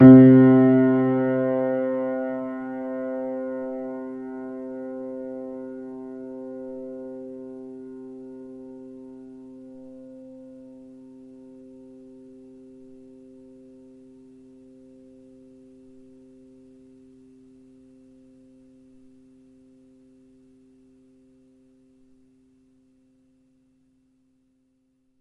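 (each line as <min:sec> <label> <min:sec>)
0:00.0 A piano key is pressed and the sound fades out. 0:25.2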